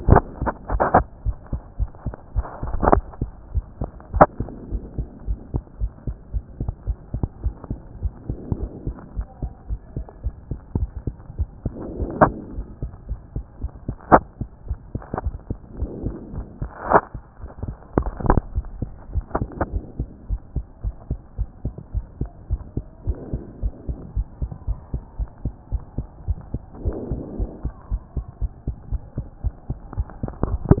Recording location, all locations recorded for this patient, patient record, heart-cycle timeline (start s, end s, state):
mitral valve (MV)
aortic valve (AV)+pulmonary valve (PV)+tricuspid valve (TV)+mitral valve (MV)
#Age: Child
#Sex: Female
#Height: 116.0 cm
#Weight: 17.5 kg
#Pregnancy status: False
#Murmur: Absent
#Murmur locations: nan
#Most audible location: nan
#Systolic murmur timing: nan
#Systolic murmur shape: nan
#Systolic murmur grading: nan
#Systolic murmur pitch: nan
#Systolic murmur quality: nan
#Diastolic murmur timing: nan
#Diastolic murmur shape: nan
#Diastolic murmur grading: nan
#Diastolic murmur pitch: nan
#Diastolic murmur quality: nan
#Outcome: Abnormal
#Campaign: 2014 screening campaign
0.00	4.58	unannotated
4.58	4.72	diastole
4.72	4.82	S1
4.82	4.98	systole
4.98	5.06	S2
5.06	5.26	diastole
5.26	5.38	S1
5.38	5.54	systole
5.54	5.62	S2
5.62	5.80	diastole
5.80	5.92	S1
5.92	6.06	systole
6.06	6.16	S2
6.16	6.34	diastole
6.34	6.44	S1
6.44	6.60	systole
6.60	6.72	S2
6.72	6.86	diastole
6.86	6.98	S1
6.98	7.14	systole
7.14	7.26	S2
7.26	7.44	diastole
7.44	7.54	S1
7.54	7.70	systole
7.70	7.78	S2
7.78	8.02	diastole
8.02	8.12	S1
8.12	8.28	systole
8.28	8.38	S2
8.38	8.58	diastole
8.58	8.70	S1
8.70	8.86	systole
8.86	8.96	S2
8.96	9.16	diastole
9.16	9.26	S1
9.26	9.42	systole
9.42	9.52	S2
9.52	9.70	diastole
9.70	9.80	S1
9.80	9.96	systole
9.96	10.06	S2
10.06	10.24	diastole
10.24	10.34	S1
10.34	10.50	systole
10.50	10.58	S2
10.58	10.78	diastole
10.78	10.90	S1
10.90	11.06	systole
11.06	11.14	S2
11.14	11.38	diastole
11.38	11.48	S1
11.48	11.64	systole
11.64	11.74	S2
11.74	11.98	diastole
11.98	12.10	S1
12.10	12.20	systole
12.20	12.34	S2
12.34	12.56	diastole
12.56	12.66	S1
12.66	12.82	systole
12.82	12.90	S2
12.90	13.08	diastole
13.08	13.20	S1
13.20	13.34	systole
13.34	13.44	S2
13.44	13.62	diastole
13.62	13.72	S1
13.72	13.86	systole
13.86	13.96	S2
13.96	14.10	diastole
14.10	14.24	S1
14.24	14.40	systole
14.40	14.50	S2
14.50	14.68	diastole
14.68	30.80	unannotated